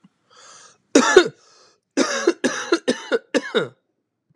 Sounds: Cough